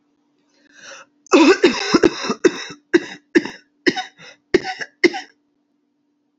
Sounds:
Cough